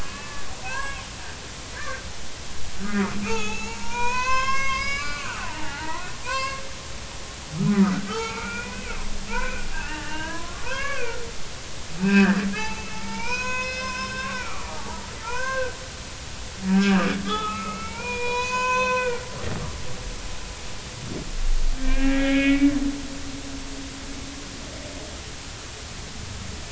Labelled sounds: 0.0	1.1	humpback whale, 0.80 to 3.4 kHz
1.8	2.0	humpback whale, 1.5 to 1.9 kHz
2.8	6.6	humpback whale, 0.80 to 6.8 kHz
8.1	8.9	humpback whale, 0.83 to 2.8 kHz
9.3	15.7	humpback whale, 0.80 to 6.7 kHz
17.2	19.2	humpback whale, 0.86 to 7.1 kHz
21.8	22.7	humpback whale, 1.4 to 2.8 kHz

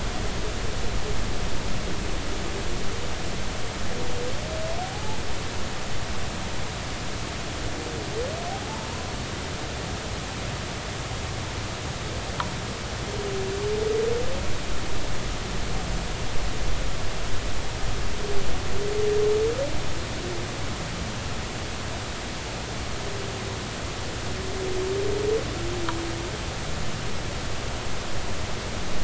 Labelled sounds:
4.9	5.2	humpback whale, 0.80 to 0.96 kHz
8.5	8.9	humpback whale, 0.80 to 1.0 kHz

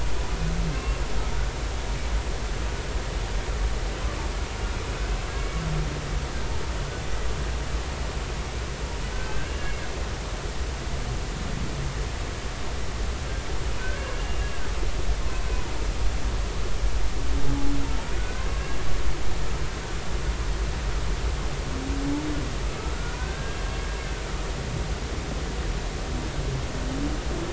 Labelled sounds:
0.7	1.0	humpback whale, 1.0 to 2.8 kHz
9.1	9.8	humpback whale, 1.5 to 2.8 kHz
13.8	14.5	humpback whale, 1.5 to 2.8 kHz
18.2	18.5	humpback whale, 1.4 to 1.6 kHz
23.2	23.7	humpback whale, 1.5 to 1.7 kHz

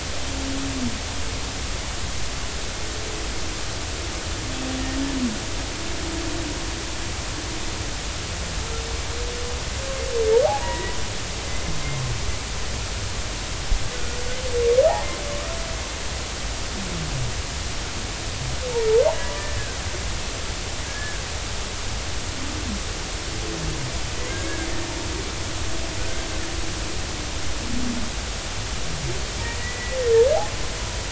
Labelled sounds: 10.6	11.0	humpback whale, 0.90 to 2.0 kHz
20.9	21.2	humpback whale, 1.5 to 1.8 kHz
29.6	30.0	humpback whale, 1.9 to 2.0 kHz

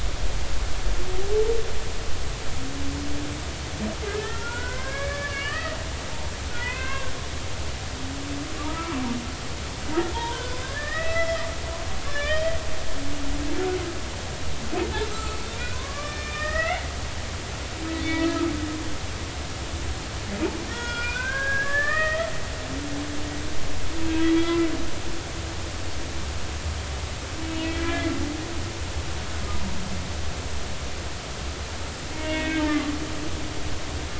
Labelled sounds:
4.1	5.8	humpback whale, 0.90 to 3.1 kHz
6.6	7.1	humpback whale, 0.90 to 2.8 kHz
8.6	9.0	humpback whale, 1.1 to 1.4 kHz
10.1	11.5	humpback whale, 0.83 to 5.3 kHz
12.0	12.6	humpback whale, 1.6 to 3.6 kHz
15.1	16.8	humpback whale, 0.96 to 5.4 kHz
18.0	18.3	humpback whale, 3.5 to 3.6 kHz
20.7	22.3	humpback whale, 1.1 to 5.3 kHz
24.2	24.7	humpback whale, 1.3 to 2.1 kHz
27.8	28.1	humpback whale, 1.6 to 2.4 kHz
32.1	32.7	humpback whale, 1.5 to 2.6 kHz

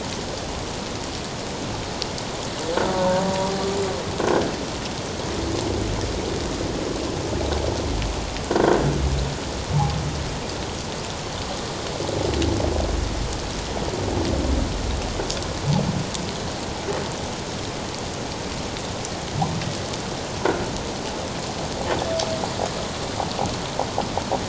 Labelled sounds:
2.9	3.2	humpback whale, 0.88 to 1.2 kHz
8.4	8.8	croaking sound likely from a nearby submerged object, 1.3 to 1.6 kHz

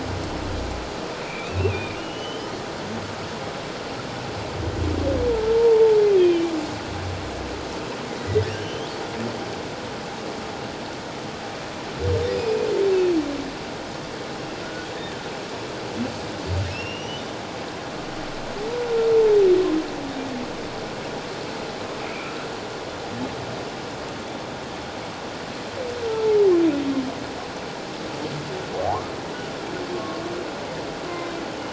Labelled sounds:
1.2	2.5	humpback whale, 2.2 to 3.2 kHz
5.5	6.5	humpback whale, 0.84 to 3.3 kHz
8.5	8.9	humpback whale, 2.6 to 3.5 kHz
12.3	12.7	humpback whale, 2.4 to 2.5 kHz
14.6	14.9	humpback whale, 1.3 to 1.5 kHz
16.7	17.2	humpback whale, 2.5 to 6.0 kHz
22.1	22.5	humpback whale, 1.2 to 2.6 kHz
26.1	26.4	humpback whale, 0.81 to 0.94 kHz
28.8	29.1	humpback whale, 0.78 to 1.3 kHz
29.9	30.2	humpback whale, 1.1 to 1.2 kHz

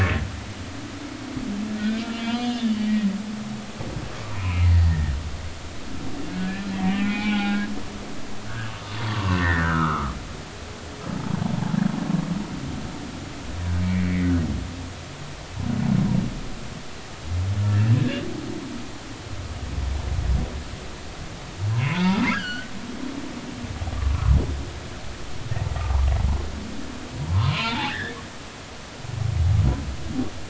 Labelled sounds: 2.2	3.1	humpback whale, 1.9 to 3.5 kHz
4.3	5.1	humpback whale, 0.93 to 2.9 kHz
6.3	7.7	humpback whale, 0.80 to 4.8 kHz
8.5	8.7	humpback whale, 1.4 to 1.7 kHz
9.4	10.1	humpback whale, 1.0 to 2.1 kHz
13.8	14.3	humpback whale, 1.8 to 2.4 kHz
21.7	22.7	humpback whale, 0.83 to 4.8 kHz
23.9	24.3	humpback whale, 0.99 to 1.2 kHz
27.3	28.2	humpback whale, 0.80 to 4.2 kHz

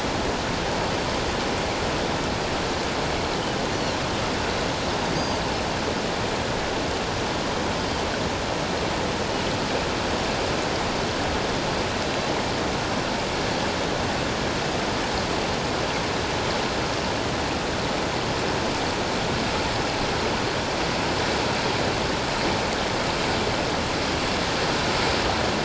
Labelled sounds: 5.1	5.4	Pacific white-sided dolphin, 4.6 to 6.5 kHz

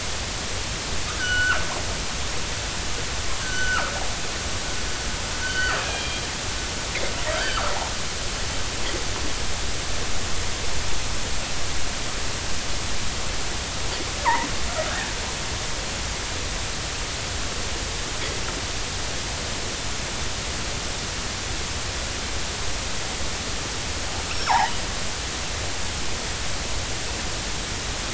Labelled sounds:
1.2	1.6	killer whale, northern resident, 1.2 to 3.0 kHz
3.4	3.9	killer whale, northern resident, 1.1 to 1.7 kHz
5.4	6.2	killer whale, northern resident, 1.2 to 3.3 kHz
7.3	7.6	killer whale, northern resident, 1.5 to 4.7 kHz
14.2	14.5	killer whale, northern resident, 0.80 to 1.3 kHz
24.3	24.7	killer whale, northern resident, 0.80 to 5.6 kHz

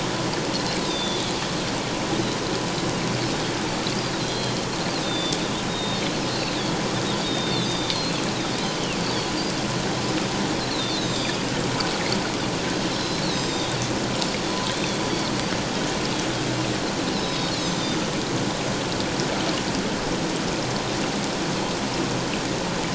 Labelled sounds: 0.8	1.2	Pacific white-sided dolphin, 3.2 to 6.0 kHz
4.2	4.6	Pacific white-sided dolphin, 3.1 to 4.2 kHz
4.9	6.0	Pacific white-sided dolphin, 3.4 to 4.7 kHz
6.3	6.6	Pacific white-sided dolphin, 3.8 to 4.2 kHz
7.2	8.2	Pacific white-sided dolphin, 3.5 to 6.4 kHz
8.6	9.3	Pacific white-sided dolphin, 2.4 to 4.8 kHz
10.7	11.5	Pacific white-sided dolphin, 3.2 to 7.5 kHz
12.9	13.8	Pacific white-sided dolphin, 3.2 to 7.6 kHz
14.7	15.0	Pacific white-sided dolphin, 3.3 to 3.7 kHz
17.1	17.9	Pacific white-sided dolphin, 3.7 to 6.5 kHz

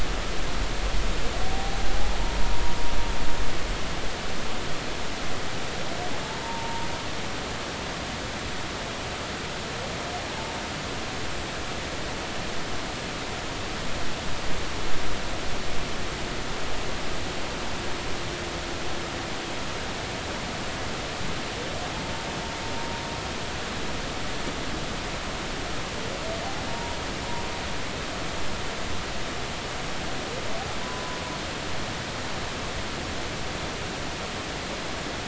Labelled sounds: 1.5	1.8	humpback whale, 0.80 to 0.86 kHz
6.4	6.9	humpback whale, 0.86 to 0.99 kHz
26.7	27.0	humpback whale, 0.90 to 1.0 kHz
30.8	31.2	humpback whale, 0.96 to 1.1 kHz

